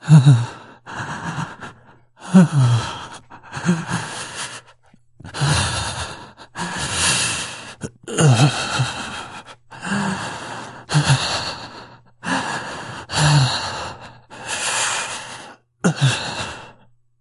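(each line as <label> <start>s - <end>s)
A man breathes heavily, almost moaning. 0.1s - 16.8s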